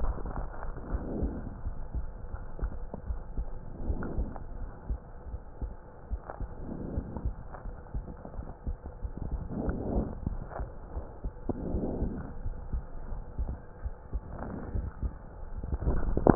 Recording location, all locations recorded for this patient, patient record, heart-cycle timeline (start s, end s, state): pulmonary valve (PV)
aortic valve (AV)+pulmonary valve (PV)+tricuspid valve (TV)+mitral valve (MV)
#Age: Child
#Sex: Female
#Height: 136.0 cm
#Weight: 30.8 kg
#Pregnancy status: False
#Murmur: Absent
#Murmur locations: nan
#Most audible location: nan
#Systolic murmur timing: nan
#Systolic murmur shape: nan
#Systolic murmur grading: nan
#Systolic murmur pitch: nan
#Systolic murmur quality: nan
#Diastolic murmur timing: nan
#Diastolic murmur shape: nan
#Diastolic murmur grading: nan
#Diastolic murmur pitch: nan
#Diastolic murmur quality: nan
#Outcome: Normal
#Campaign: 2015 screening campaign
0.00	0.70	unannotated
0.70	0.90	diastole
0.90	1.02	S1
1.02	1.20	systole
1.20	1.34	S2
1.34	1.64	diastole
1.64	1.76	S1
1.76	1.92	systole
1.92	2.06	S2
2.06	2.30	diastole
2.30	2.42	S1
2.42	2.60	systole
2.60	2.74	S2
2.74	3.06	diastole
3.06	3.20	S1
3.20	3.36	systole
3.36	3.50	S2
3.50	3.82	diastole
3.82	4.00	S1
4.00	4.16	systole
4.16	4.30	S2
4.30	4.60	diastole
4.60	4.70	S1
4.70	4.88	systole
4.88	4.98	S2
4.98	5.32	diastole
5.32	5.42	S1
5.42	5.60	systole
5.60	5.72	S2
5.72	6.10	diastole
6.10	6.20	S1
6.20	6.40	systole
6.40	6.52	S2
6.52	6.92	diastole
6.92	7.06	S1
7.06	7.24	systole
7.24	7.34	S2
7.34	7.66	diastole
7.66	7.76	S1
7.76	7.96	systole
7.96	8.08	S2
8.08	8.38	diastole
8.38	8.48	S1
8.48	8.66	systole
8.66	8.76	S2
8.76	9.02	diastole
9.02	9.12	S1
9.12	9.30	systole
9.30	9.42	S2
9.42	9.66	diastole
9.66	9.80	S1
9.80	9.92	systole
9.92	10.06	S2
10.06	10.30	diastole
10.30	10.42	S1
10.42	10.58	systole
10.58	10.68	S2
10.68	10.94	diastole
10.94	11.04	S1
11.04	11.24	systole
11.24	11.34	S2
11.34	11.66	diastole
11.66	11.84	S1
11.84	12.00	systole
12.00	12.14	S2
12.14	12.44	diastole
12.44	12.56	S1
12.56	12.72	systole
12.72	12.86	S2
12.86	13.10	diastole
13.10	13.24	S1
13.24	13.38	systole
13.38	13.50	S2
13.50	13.84	diastole
13.84	13.96	S1
13.96	14.14	systole
14.14	14.28	S2
14.28	14.68	diastole
14.68	14.86	S1
14.86	15.02	systole
15.02	15.16	S2
15.16	15.56	diastole
15.56	16.35	unannotated